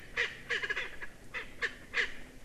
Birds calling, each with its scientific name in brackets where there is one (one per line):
Erckel's Francolin (Pternistis erckelii)